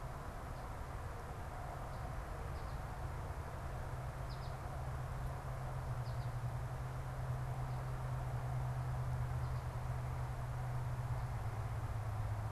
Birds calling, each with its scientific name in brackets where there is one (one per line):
American Goldfinch (Spinus tristis)